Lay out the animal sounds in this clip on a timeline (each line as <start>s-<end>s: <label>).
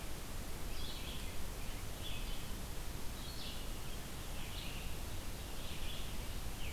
0.0s-6.7s: Red-eyed Vireo (Vireo olivaceus)